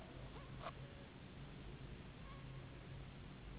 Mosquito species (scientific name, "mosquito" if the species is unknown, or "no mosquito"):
Anopheles gambiae s.s.